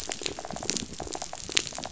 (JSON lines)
{"label": "biophony, rattle", "recorder": "SoundTrap 500"}